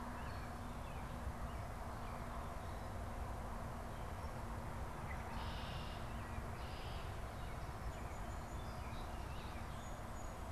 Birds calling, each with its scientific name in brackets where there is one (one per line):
Red-winged Blackbird (Agelaius phoeniceus)
Song Sparrow (Melospiza melodia)